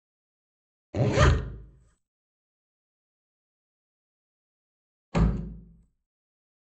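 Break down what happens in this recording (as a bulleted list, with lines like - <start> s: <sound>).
- 0.9 s: the sound of a clothing zipper
- 5.1 s: a wooden door closes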